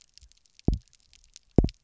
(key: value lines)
label: biophony, double pulse
recorder: SoundTrap 300